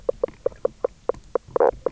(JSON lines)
{"label": "biophony, knock croak", "recorder": "SoundTrap 300"}